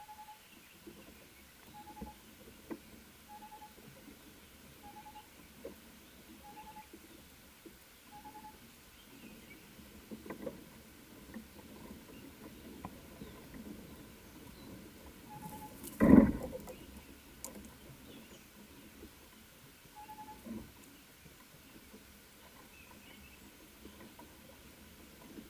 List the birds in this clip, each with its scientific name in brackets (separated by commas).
Tropical Boubou (Laniarius major)